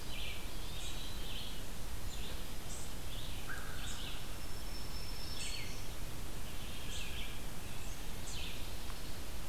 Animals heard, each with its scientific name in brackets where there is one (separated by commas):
Eastern Wood-Pewee (Contopus virens), American Crow (Corvus brachyrhynchos), Black-throated Green Warbler (Setophaga virens), unknown mammal, Red-eyed Vireo (Vireo olivaceus)